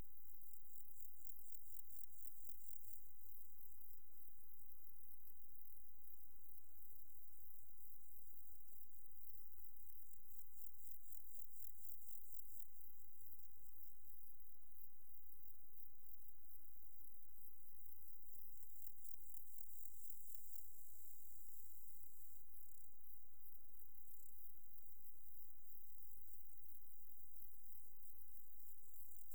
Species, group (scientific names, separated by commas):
Pseudochorthippus parallelus, Orthoptera